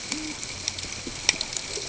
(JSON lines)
{"label": "ambient", "recorder": "HydroMoth"}